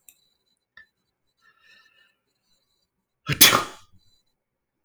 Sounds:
Sneeze